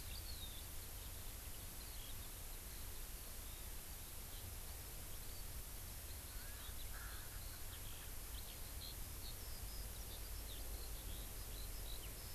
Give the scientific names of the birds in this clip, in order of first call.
Alauda arvensis, Pternistis erckelii